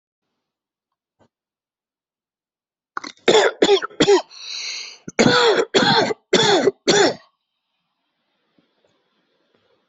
{"expert_labels": [{"quality": "ok", "cough_type": "dry", "dyspnea": false, "wheezing": false, "stridor": false, "choking": false, "congestion": false, "nothing": true, "diagnosis": "COVID-19", "severity": "severe"}], "age": 36, "gender": "male", "respiratory_condition": true, "fever_muscle_pain": false, "status": "symptomatic"}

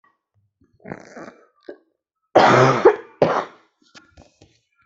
{"expert_labels": [{"quality": "ok", "cough_type": "dry", "dyspnea": false, "wheezing": false, "stridor": false, "choking": false, "congestion": false, "nothing": true, "diagnosis": "COVID-19", "severity": "mild"}], "age": 36, "gender": "female", "respiratory_condition": false, "fever_muscle_pain": false, "status": "healthy"}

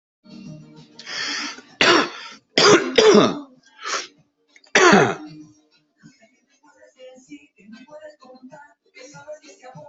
{"expert_labels": [{"quality": "good", "cough_type": "wet", "dyspnea": false, "wheezing": false, "stridor": false, "choking": false, "congestion": false, "nothing": true, "diagnosis": "lower respiratory tract infection", "severity": "mild"}], "age": 53, "gender": "male", "respiratory_condition": true, "fever_muscle_pain": false, "status": "symptomatic"}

